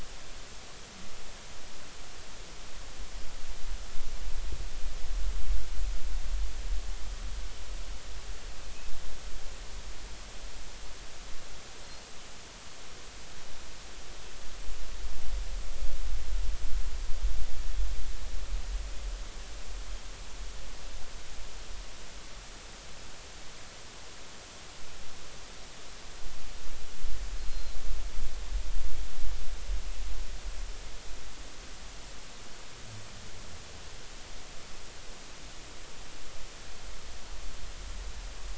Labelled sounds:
27.4	27.8	Pacific white-sided dolphin, 3.9 to 4.4 kHz

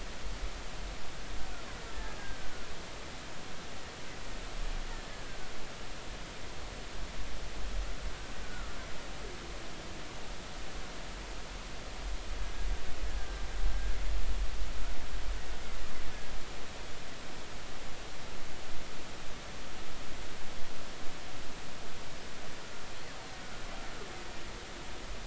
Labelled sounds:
2.2	2.5	killer whale, Bigg's (transient), 1.5 to 1.7 kHz
5.1	5.4	killer whale, Bigg's (transient), 1.5 to 1.7 kHz
8.4	8.7	killer whale, Bigg's (transient), 1.3 to 1.5 kHz

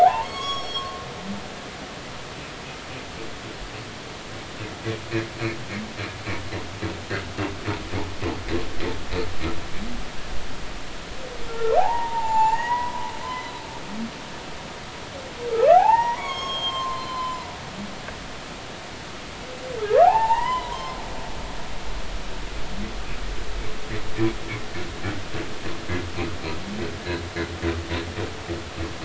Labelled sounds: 0.0	1.0	humpback whale, 0.80 to 7.8 kHz
11.5	13.6	humpback whale, 0.80 to 7.4 kHz
15.6	17.5	humpback whale, 0.80 to 6.8 kHz
19.8	21.0	humpback whale, 0.80 to 3.1 kHz

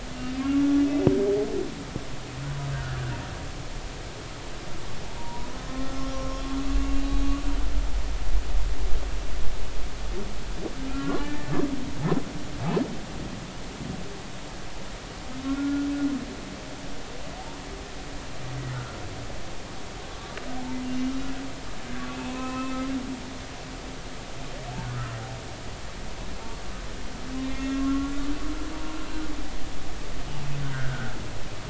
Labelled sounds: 2.7	3.1	humpback whale, 1.2 to 1.7 kHz
5.2	5.5	humpback whale, 0.90 to 1.0 kHz
6.1	7.3	humpback whale, 1.0 to 3.9 kHz
10.9	11.5	humpback whale, 1.0 to 2.4 kHz
15.5	15.9	humpback whale, 1.3 to 1.5 kHz
18.7	19.0	humpback whale, 1.2 to 1.5 kHz
22.1	22.8	humpback whale, 0.96 to 2.7 kHz
24.9	25.2	humpback whale, 1.2 to 1.5 kHz
27.5	28.3	humpback whale, 1.0 to 2.2 kHz

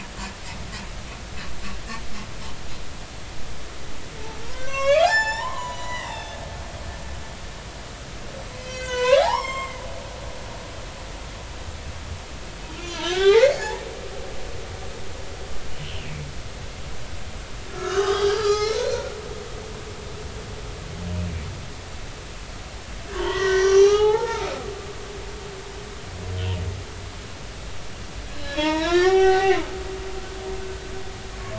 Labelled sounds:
4.5	6.4	humpback whale, 0.80 to 7.4 kHz
8.6	10.2	humpback whale, 0.80 to 7.6 kHz
12.8	13.7	humpback whale, 0.80 to 3.6 kHz
15.7	16.2	humpback whale, 2.4 to 3.3 kHz
17.7	19.2	humpback whale, 0.80 to 6.0 kHz
23.1	24.5	humpback whale, 0.80 to 6.2 kHz
26.4	26.6	humpback whale, 2.4 to 3.3 kHz
28.3	30.5	humpback whale, 0.80 to 6.9 kHz

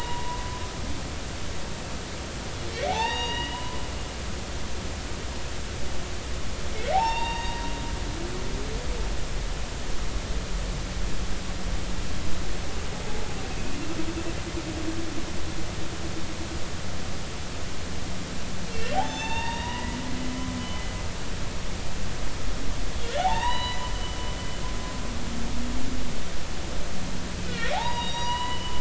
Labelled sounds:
2.9	3.8	humpback whale, 0.80 to 6.7 kHz
6.7	7.7	humpback whale, 0.80 to 4.7 kHz
18.7	20.0	humpback whale, 0.80 to 7.2 kHz
23.2	23.9	humpback whale, 0.80 to 5.0 kHz
27.4	28.7	humpback whale, 0.80 to 5.9 kHz

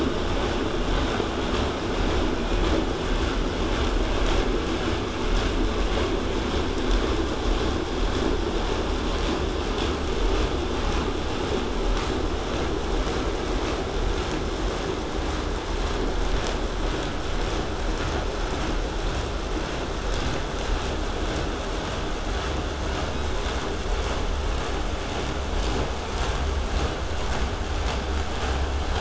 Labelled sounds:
0.0	5.0	vessel noise, 0 to 8.0 kHz
23.1	23.6	killer whale, southern resident, 3.5 to 8.0 kHz

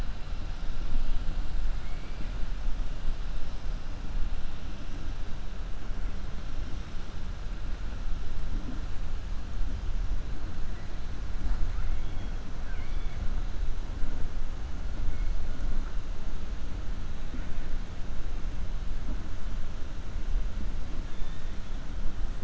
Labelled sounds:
1.7	2.3	killer whale, 1.9 to 2.7 kHz
11.7	13.2	killer whale, 1.1 to 3.5 kHz

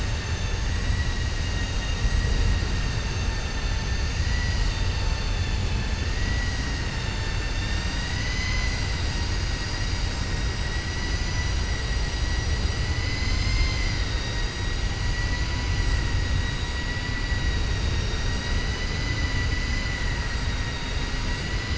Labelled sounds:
1.4	2.1	vessel noise, 1.9 to 3.8 kHz
17.7	18.5	vessel noise, 2.8 to 7.6 kHz

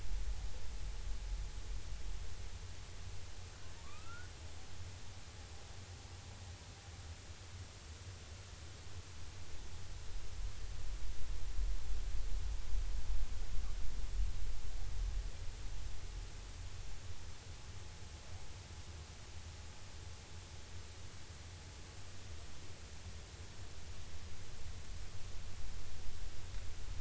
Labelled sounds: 3.8	4.3	humpback whale, 1.1 to 1.5 kHz

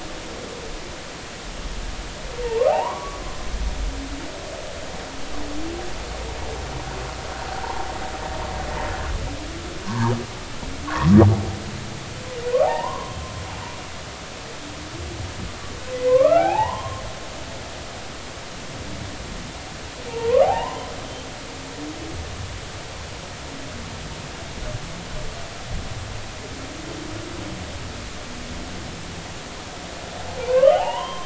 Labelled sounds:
2.7	3.2	humpback whale, 0.80 to 1.2 kHz
9.8	10.1	humpback whale, 0.80 to 1.3 kHz
10.9	11.1	humpback whale, 0.93 to 1.2 kHz
12.6	13.2	humpback whale, 0.80 to 1.2 kHz
15.9	17.0	humpback whale, 0.80 to 2.7 kHz
20.1	20.9	humpback whale, 0.80 to 1.3 kHz
30.4	31.2	humpback whale, 0.80 to 3.3 kHz

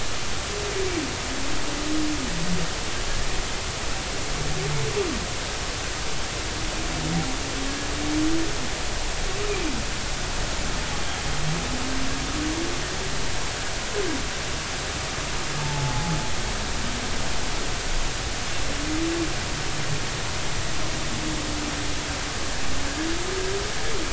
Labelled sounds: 15.6	16.2	humpback whale, 0.80 to 0.93 kHz

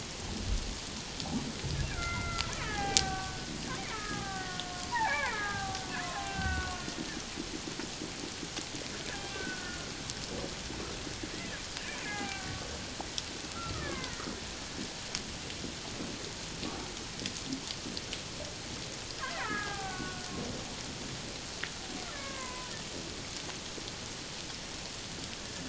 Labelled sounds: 1.9	6.8	killer whale, Bigg's (transient), call T07, 0.78 to 2.8 kHz
9.3	9.9	killer whale, Bigg's (transient), call T07, 1.3 to 1.6 kHz
12.0	12.6	killer whale, Bigg's (transient), call T08, 0.78 to 2.2 kHz
13.5	14.3	killer whale, Bigg's (transient), 0.94 to 2.4 kHz
19.2	20.3	killer whale, Bigg's (transient), 0.78 to 2.2 kHz
22.1	22.7	killer whale, Bigg's (transient), 0.91 to 2.2 kHz

